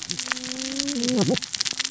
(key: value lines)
label: biophony, cascading saw
recorder: SoundTrap 600 or HydroMoth